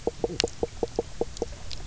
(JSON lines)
{"label": "biophony, knock croak", "recorder": "SoundTrap 300"}